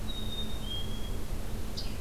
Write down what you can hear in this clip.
Black-capped Chickadee, Scarlet Tanager